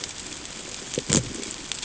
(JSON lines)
{"label": "ambient", "recorder": "HydroMoth"}